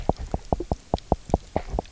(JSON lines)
{"label": "biophony, knock", "recorder": "SoundTrap 300"}